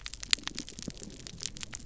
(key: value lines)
label: biophony, damselfish
recorder: SoundTrap 300